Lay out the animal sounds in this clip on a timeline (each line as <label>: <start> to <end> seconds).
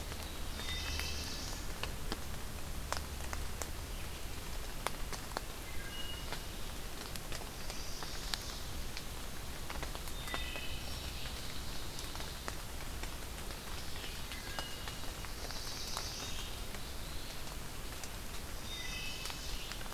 Black-throated Blue Warbler (Setophaga caerulescens): 0.0 to 1.7 seconds
Wood Thrush (Hylocichla mustelina): 0.4 to 1.3 seconds
Wood Thrush (Hylocichla mustelina): 5.6 to 6.6 seconds
Chestnut-sided Warbler (Setophaga pensylvanica): 7.3 to 8.7 seconds
Wood Thrush (Hylocichla mustelina): 10.1 to 10.9 seconds
Ovenbird (Seiurus aurocapilla): 10.5 to 12.5 seconds
Red-eyed Vireo (Vireo olivaceus): 13.5 to 19.9 seconds
Wood Thrush (Hylocichla mustelina): 14.2 to 15.1 seconds
Black-throated Blue Warbler (Setophaga caerulescens): 15.0 to 16.5 seconds
Wood Thrush (Hylocichla mustelina): 16.0 to 16.8 seconds
Chestnut-sided Warbler (Setophaga pensylvanica): 18.5 to 19.7 seconds
Wood Thrush (Hylocichla mustelina): 18.6 to 19.5 seconds